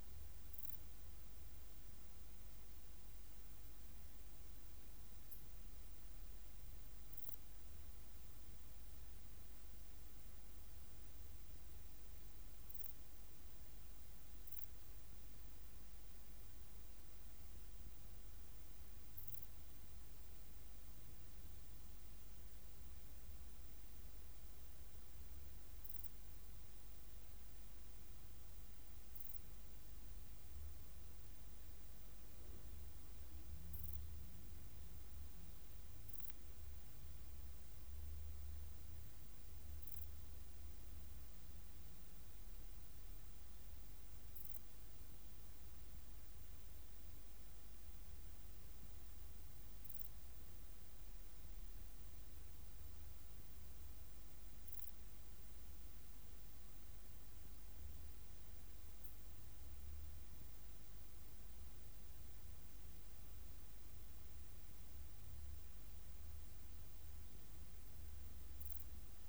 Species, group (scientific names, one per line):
Pachytrachis gracilis
Orthoptera